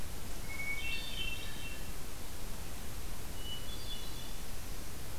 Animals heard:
Hermit Thrush (Catharus guttatus)

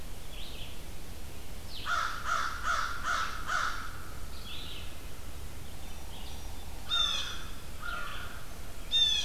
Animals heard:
Blue Jay (Cyanocitta cristata), Red-eyed Vireo (Vireo olivaceus), American Crow (Corvus brachyrhynchos)

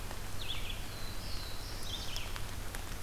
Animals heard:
Black-throated Blue Warbler (Setophaga caerulescens), Red-eyed Vireo (Vireo olivaceus)

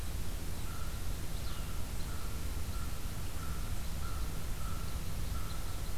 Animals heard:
American Crow (Corvus brachyrhynchos), Red Crossbill (Loxia curvirostra)

